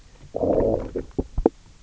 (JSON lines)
{"label": "biophony, low growl", "recorder": "SoundTrap 300"}